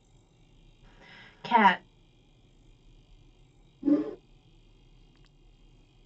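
A faint, constant noise sits beneath the sounds. At 1.43 seconds, a voice says "Cat." After that, at 3.81 seconds, whooshing is audible.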